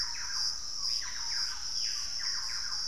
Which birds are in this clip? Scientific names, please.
Legatus leucophaius, Lipaugus vociferans, Campylorhynchus turdinus